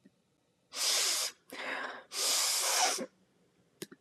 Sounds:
Sniff